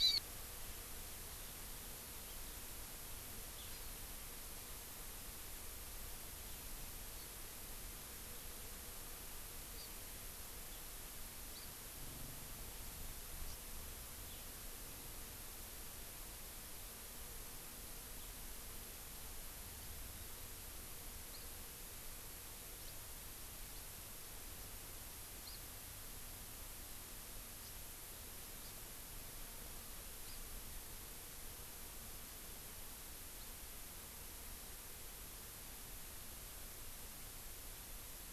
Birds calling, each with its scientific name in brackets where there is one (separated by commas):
Hawaii Amakihi (Chlorodrepanis virens)